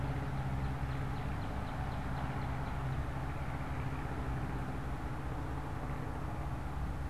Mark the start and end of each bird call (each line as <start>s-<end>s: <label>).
0.0s-3.4s: Northern Cardinal (Cardinalis cardinalis)